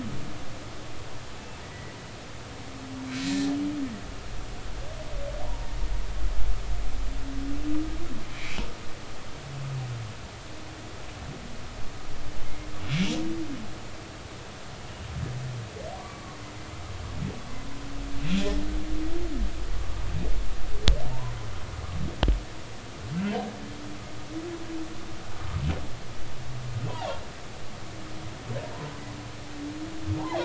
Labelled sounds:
1.6	1.9	humpback whale, 1.9 to 2.0 kHz
3.1	3.3	humpback whale, 4.0 to 4.1 kHz
5.4	5.7	humpback whale, 0.86 to 1.0 kHz
8.3	8.6	humpback whale, 2.0 to 2.7 kHz
16.0	16.4	humpback whale, 0.96 to 1.2 kHz
26.9	27.2	humpback whale, 2.6 to 2.9 kHz

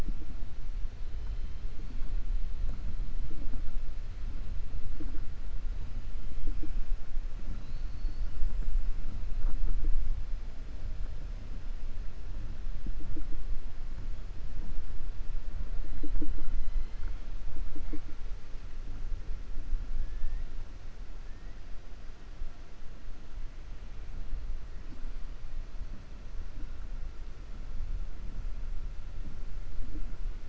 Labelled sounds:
7.5	8.3	killer whale, 3.9 to 5.1 kHz

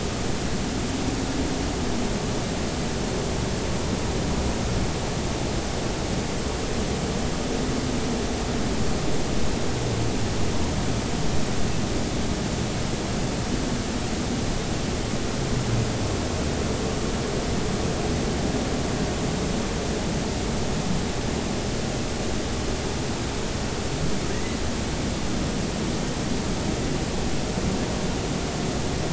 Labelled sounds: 24.3	24.6	humpback whale, 1.8 to 2.2 kHz

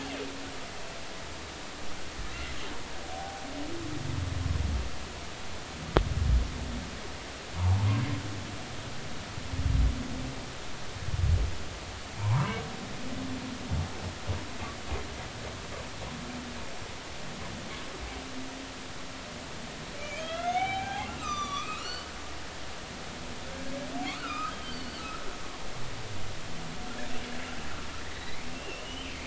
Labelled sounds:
3.1	3.5	humpback whale, 0.80 to 0.86 kHz
12.2	12.6	humpback whale, 0.80 to 1.3 kHz
20.0	22.1	humpback whale, 0.80 to 7.2 kHz
24.1	25.0	humpback whale, 1.1 to 4.7 kHz
28.0	29.1	humpback whale, 1.8 to 4.1 kHz

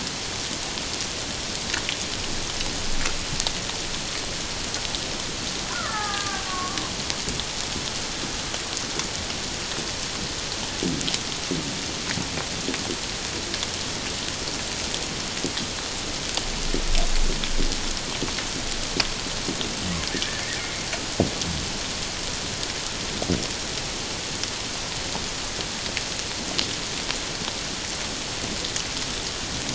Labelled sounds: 5.7	6.8	killer whale, Bigg's (transient), 0.78 to 2.0 kHz

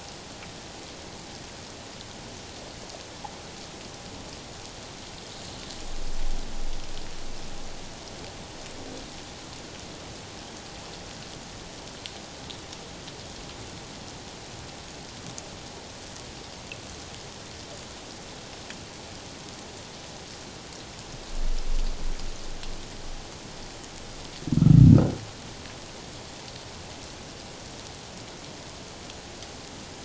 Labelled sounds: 24.6	24.8	humpback whale, 1.2 to 1.4 kHz

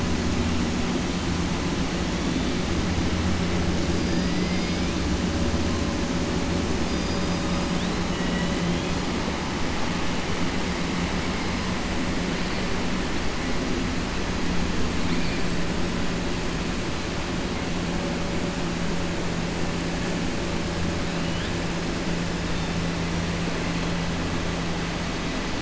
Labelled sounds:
6.8	7.6	killer whale, 4.1 to 5.3 kHz
8.1	8.5	killer whale, 0.98 to 3.9 kHz

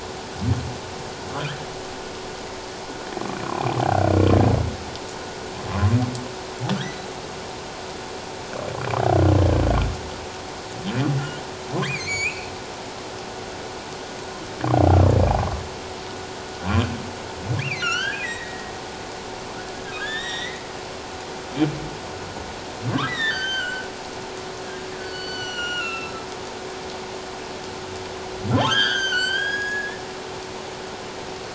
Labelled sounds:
1.3	1.6	humpback whale, 0.97 to 1.8 kHz
3.4	4.1	humpback whale, 1.4 to 2.5 kHz
11.8	12.5	humpback whale, 1.5 to 7.2 kHz
17.6	18.7	humpback whale, 1.3 to 6.5 kHz
20.0	20.7	humpback whale, 1.5 to 5.9 kHz
23.1	23.9	humpback whale, 1.4 to 6.4 kHz
25.0	26.2	humpback whale, 1.3 to 7.3 kHz
28.6	30.0	humpback whale, 1.3 to 8.0 kHz

